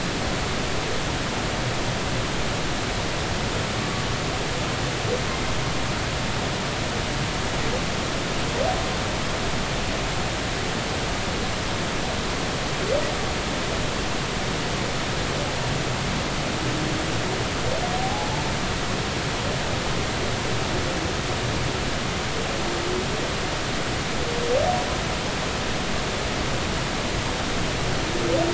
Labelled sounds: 18.0	18.3	humpback whale, 0.80 to 0.90 kHz

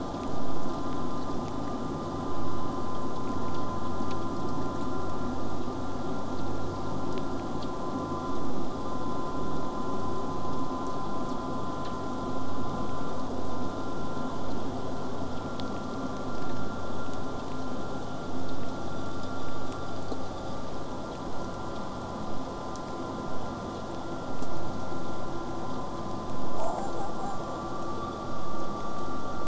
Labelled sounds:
26.5	27.6	killer whale, southern resident, J pod, 6.0 to 8.0 kHz

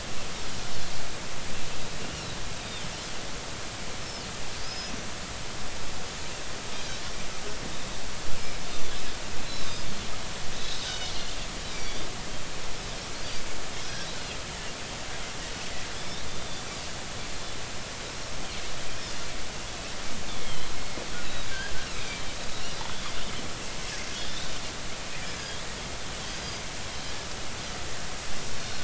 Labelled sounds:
2.6	2.8	Pacific white-sided dolphin, 3.5 to 3.9 kHz
4.6	4.9	Pacific white-sided dolphin, 4.9 to 5.2 kHz
8.4	8.6	Pacific white-sided dolphin, 5.0 to 5.3 kHz
10.5	11.1	Pacific white-sided dolphin, 2.9 to 4.1 kHz
11.7	12.0	Pacific white-sided dolphin, 2.2 to 2.4 kHz
13.8	14.1	Pacific white-sided dolphin, 1.4 to 1.7 kHz
15.9	16.2	Pacific white-sided dolphin, 3.2 to 3.8 kHz
20.4	21.5	Pacific white-sided dolphin, 2.0 to 4.2 kHz
21.9	22.2	Pacific white-sided dolphin, 2.2 to 2.6 kHz
22.8	23.0	Pacific white-sided dolphin, 3.2 to 3.6 kHz
24.1	24.5	Pacific white-sided dolphin, 3.2 to 3.9 kHz
25.3	25.6	Pacific white-sided dolphin, 3.2 to 5.2 kHz
26.4	26.7	Pacific white-sided dolphin, 4.8 to 4.9 kHz

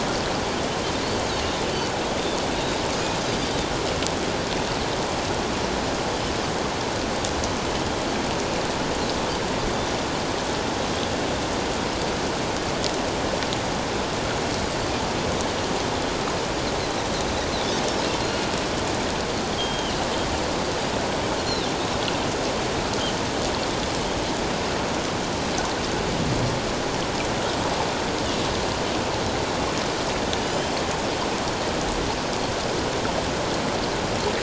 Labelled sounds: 2.5	2.8	Pacific white-sided dolphin, 3.6 to 3.9 kHz
18.2	18.5	Pacific white-sided dolphin, 4.2 to 4.3 kHz
19.6	20.0	Pacific white-sided dolphin, 2.8 to 3.3 kHz
30.4	30.7	Pacific white-sided dolphin, 2.9 to 3.2 kHz

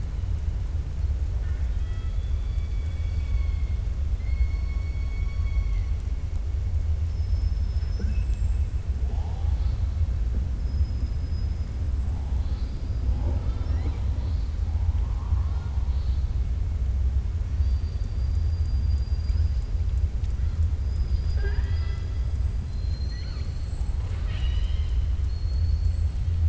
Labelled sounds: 4.1	5.9	killer whale, 1.1 to 4.5 kHz
7.0	8.8	killer whale, 4.6 to 7.9 kHz
12.3	13.1	killer whale, 3.2 to 5.0 kHz
14.9	15.8	killer whale, 0.78 to 1.8 kHz
22.6	26.4	killer whale, 0.64 to 8.0 kHz

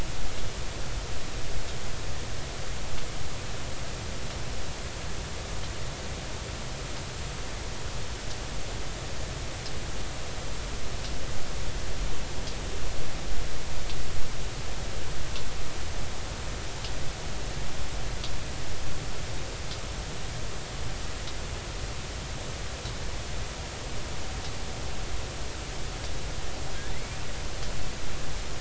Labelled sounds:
26.9	27.2	killer whale, 1.9 to 2.4 kHz

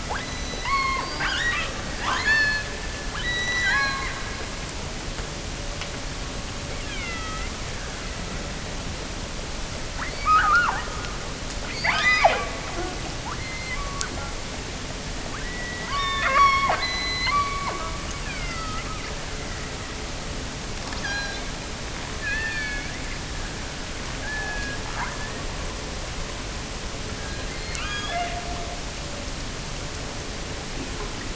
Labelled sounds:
0.0	2.8	killer whale, offshore, 0.52 to 7.1 kHz
3.1	4.3	killer whale, offshore, 0.77 to 8.0 kHz
6.8	8.9	killer whale, offshore, 1.1 to 4.2 kHz
10.0	11.0	killer whale, offshore, 0.59 to 5.3 kHz
11.7	12.6	killer whale, offshore, 0.36 to 7.5 kHz
13.2	14.1	killer whale, offshore, 0.64 to 4.4 kHz
15.2	19.1	killer whale, offshore, 0.84 to 6.2 kHz
20.9	21.6	killer whale, offshore, 1.4 to 6.2 kHz
22.2	23.0	killer whale, offshore, 1.5 to 5.0 kHz
24.2	25.6	killer whale, offshore, 0.64 to 4.6 kHz
27.2	28.8	killer whale, offshore, 0.50 to 6.9 kHz

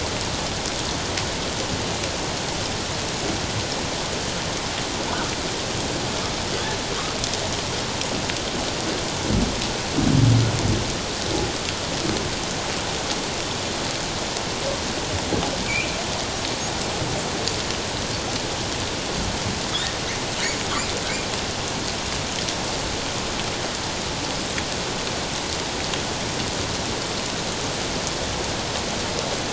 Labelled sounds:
15.7	16.0	humpback whale, 2.2 to 2.8 kHz

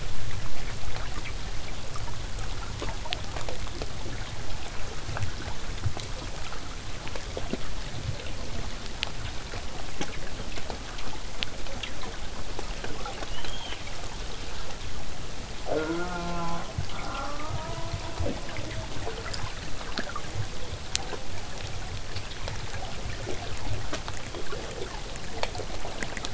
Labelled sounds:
13.3	13.8	killer whale, southern resident, whistle, 2.6 to 6.6 kHz
15.6	16.7	killer whale, southern resident, J pod, call S04, 0.08 to 3.0 kHz
16.9	18.9	killer whale, southern resident, 0.26 to 1.7 kHz
21.3	26.3	vessel noise, 0 to 8.0 kHz

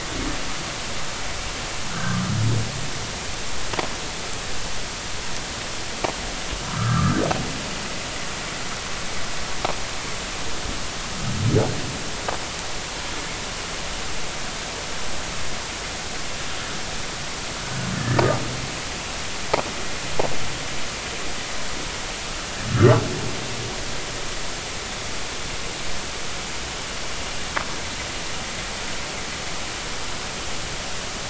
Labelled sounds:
1.9	2.2	humpback whale, 1.2 to 1.7 kHz
6.7	7.2	humpback whale, 1.1 to 1.4 kHz
17.6	18.2	humpback whale, 1.4 to 1.8 kHz
22.7	23.0	humpback whale, 1.1 to 1.8 kHz

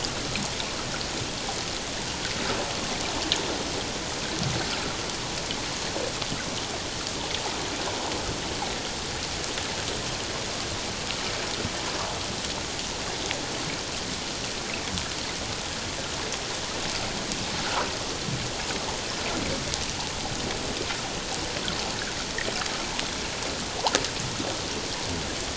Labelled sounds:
17.6	17.9	water noise, 0.84 to 1.5 kHz

